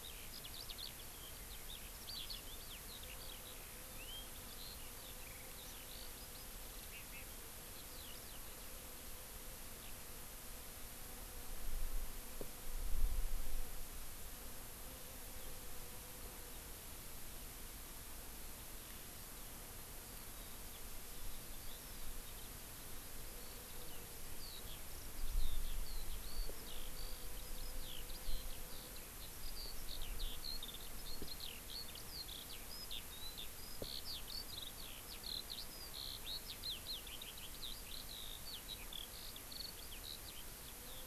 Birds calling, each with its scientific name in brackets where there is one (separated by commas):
Eurasian Skylark (Alauda arvensis)